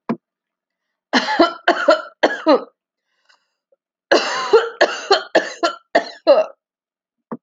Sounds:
Cough